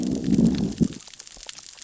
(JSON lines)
{"label": "biophony, growl", "recorder": "SoundTrap 600 or HydroMoth"}